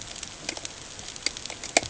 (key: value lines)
label: ambient
recorder: HydroMoth